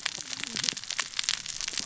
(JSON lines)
{"label": "biophony, cascading saw", "recorder": "SoundTrap 600 or HydroMoth"}